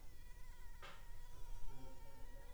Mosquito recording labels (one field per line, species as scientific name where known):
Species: Anopheles funestus s.l.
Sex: female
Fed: unfed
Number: one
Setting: cup